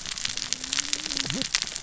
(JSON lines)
{"label": "biophony, cascading saw", "recorder": "SoundTrap 600 or HydroMoth"}